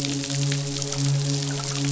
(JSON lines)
{"label": "biophony, midshipman", "recorder": "SoundTrap 500"}